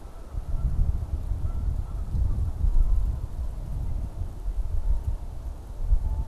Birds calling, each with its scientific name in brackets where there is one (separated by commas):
Canada Goose (Branta canadensis)